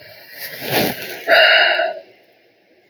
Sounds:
Sigh